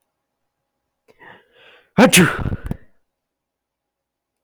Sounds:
Sneeze